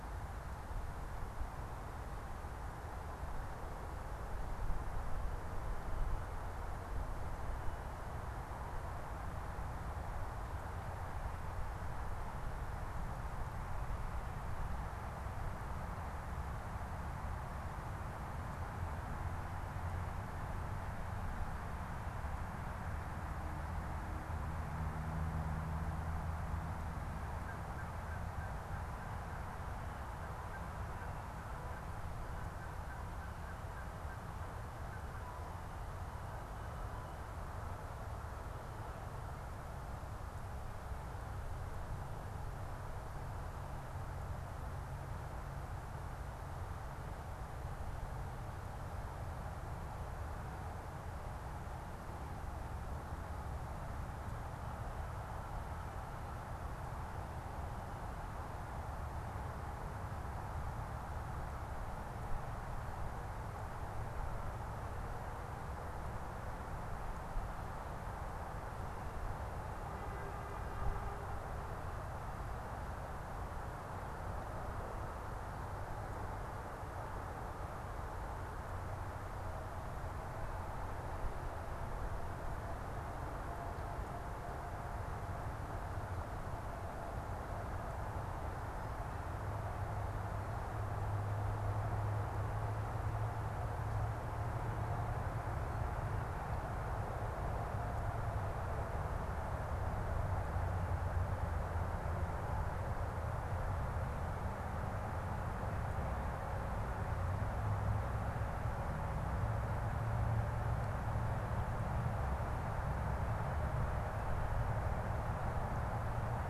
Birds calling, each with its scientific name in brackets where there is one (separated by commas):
Canada Goose (Branta canadensis)